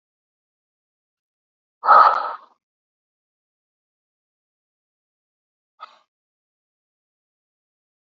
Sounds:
Sigh